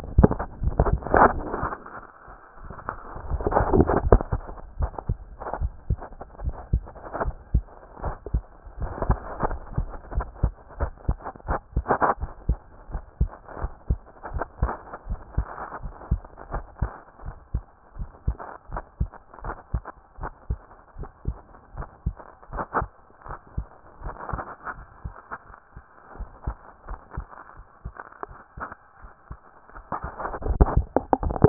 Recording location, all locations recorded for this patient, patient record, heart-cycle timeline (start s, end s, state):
tricuspid valve (TV)
pulmonary valve (PV)+tricuspid valve (TV)+mitral valve (MV)
#Age: Child
#Sex: Male
#Height: 123.0 cm
#Weight: 22.9 kg
#Pregnancy status: False
#Murmur: Absent
#Murmur locations: nan
#Most audible location: nan
#Systolic murmur timing: nan
#Systolic murmur shape: nan
#Systolic murmur grading: nan
#Systolic murmur pitch: nan
#Systolic murmur quality: nan
#Diastolic murmur timing: nan
#Diastolic murmur shape: nan
#Diastolic murmur grading: nan
#Diastolic murmur pitch: nan
#Diastolic murmur quality: nan
#Outcome: Normal
#Campaign: 2014 screening campaign
0.00	12.20	unannotated
12.20	12.30	S1
12.30	12.48	systole
12.48	12.58	S2
12.58	12.92	diastole
12.92	13.02	S1
13.02	13.20	systole
13.20	13.30	S2
13.30	13.60	diastole
13.60	13.72	S1
13.72	13.88	systole
13.88	14.00	S2
14.00	14.32	diastole
14.32	14.44	S1
14.44	14.60	systole
14.60	14.72	S2
14.72	15.08	diastole
15.08	15.20	S1
15.20	15.36	systole
15.36	15.48	S2
15.48	15.82	diastole
15.82	15.94	S1
15.94	16.10	systole
16.10	16.20	S2
16.20	16.52	diastole
16.52	16.64	S1
16.64	16.80	systole
16.80	16.92	S2
16.92	17.24	diastole
17.24	17.36	S1
17.36	17.54	systole
17.54	17.64	S2
17.64	17.98	diastole
17.98	18.08	S1
18.08	18.26	systole
18.26	18.36	S2
18.36	18.72	diastole
18.72	18.82	S1
18.82	19.00	systole
19.00	19.10	S2
19.10	19.44	diastole
19.44	19.56	S1
19.56	19.72	systole
19.72	19.82	S2
19.82	20.20	diastole
20.20	20.32	S1
20.32	20.48	systole
20.48	20.60	S2
20.60	20.98	diastole
20.98	21.08	S1
21.08	21.26	systole
21.26	21.36	S2
21.36	21.76	diastole
21.76	21.88	S1
21.88	22.06	systole
22.06	22.16	S2
22.16	22.52	diastole
22.52	22.64	S1
22.64	22.81	systole
22.81	22.90	S2
22.90	23.28	diastole
23.28	23.38	S1
23.38	23.56	systole
23.56	23.66	S2
23.66	24.02	diastole
24.02	31.49	unannotated